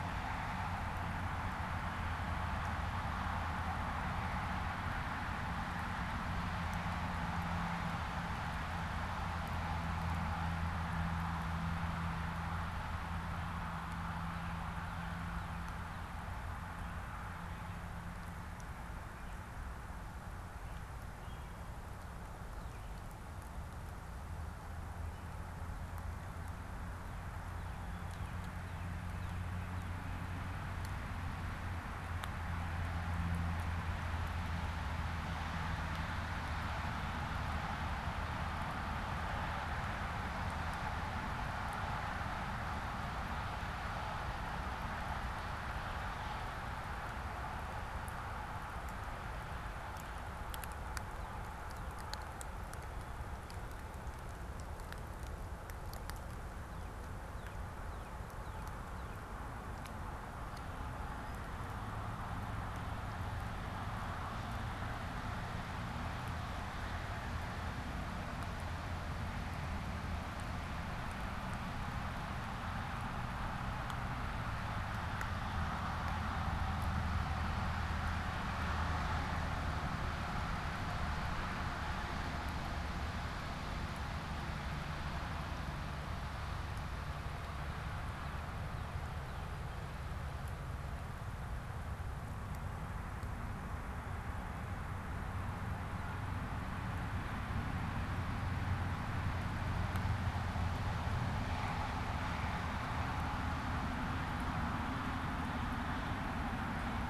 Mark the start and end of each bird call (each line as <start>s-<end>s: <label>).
14.0s-16.3s: Northern Cardinal (Cardinalis cardinalis)
18.9s-28.4s: American Robin (Turdus migratorius)
27.9s-30.6s: Northern Cardinal (Cardinalis cardinalis)
51.0s-52.1s: Northern Cardinal (Cardinalis cardinalis)
56.5s-59.4s: Northern Cardinal (Cardinalis cardinalis)
86.6s-89.6s: Northern Cardinal (Cardinalis cardinalis)